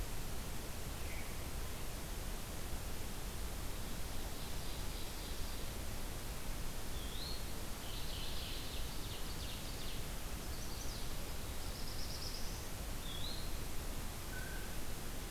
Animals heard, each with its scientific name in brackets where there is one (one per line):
Ovenbird (Seiurus aurocapilla)
Mourning Warbler (Geothlypis philadelphia)
Veery (Catharus fuscescens)
Blue Jay (Cyanocitta cristata)
Chestnut-sided Warbler (Setophaga pensylvanica)
Eastern Wood-Pewee (Contopus virens)